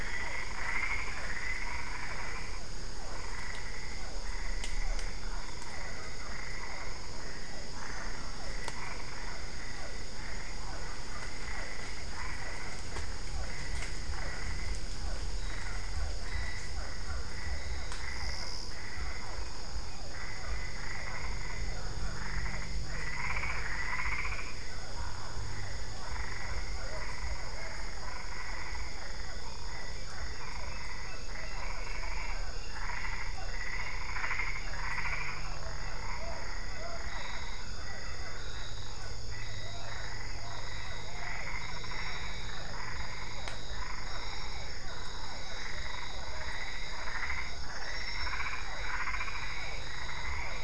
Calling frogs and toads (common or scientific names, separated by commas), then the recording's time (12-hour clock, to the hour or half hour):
Boana albopunctata, Physalaemus cuvieri
~7pm